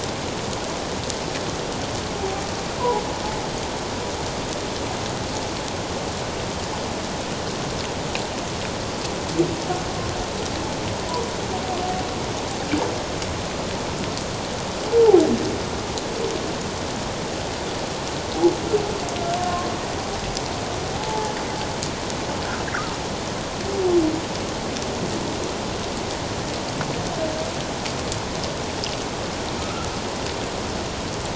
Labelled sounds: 19.4	19.7	humpback whale, 1.0 to 1.1 kHz
20.9	21.3	humpback whale, 0.78 to 0.94 kHz
29.6	29.9	humpback whale, 1.2 to 1.4 kHz

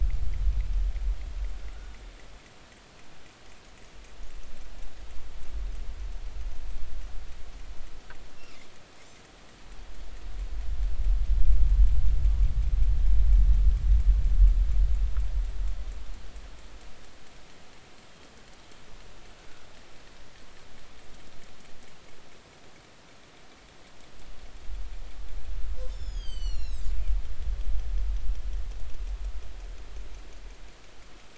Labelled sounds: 1.7	2.0	killer whale, northern resident, G clan, call N40, 1.3 to 1.6 kHz
25.9	26.9	killer whale, northern resident, G clan, 2.6 to 8.0 kHz

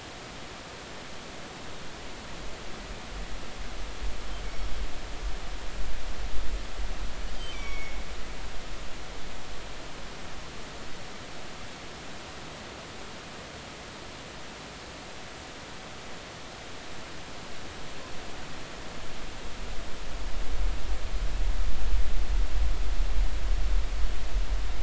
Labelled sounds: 7.5	8.0	killer whale, northern resident, G clan, GG subclan, call N23ii, 2.1 to 5.8 kHz

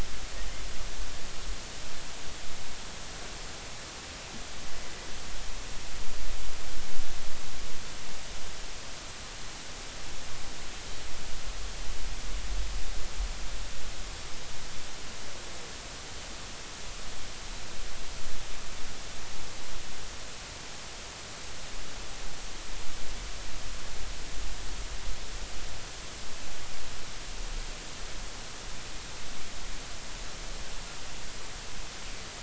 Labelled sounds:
9.3	9.6	Pacific white-sided dolphin, 4.0 to 4.4 kHz

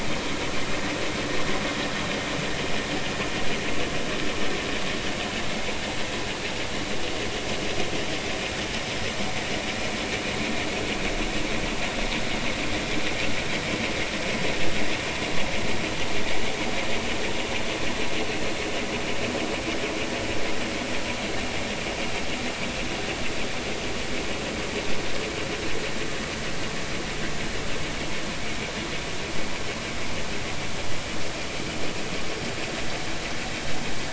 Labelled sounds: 5.5	5.7	vessel noise, 2.0 to 2.3 kHz

